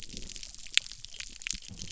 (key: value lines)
label: biophony
recorder: SoundTrap 300